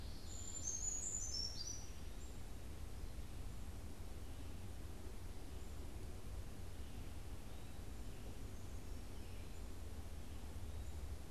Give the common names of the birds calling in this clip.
Brown Creeper